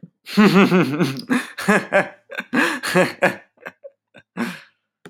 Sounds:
Laughter